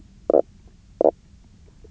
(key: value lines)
label: biophony, knock croak
recorder: SoundTrap 300